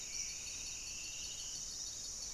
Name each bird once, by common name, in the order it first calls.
Striped Woodcreeper, Buff-breasted Wren, Spot-winged Antshrike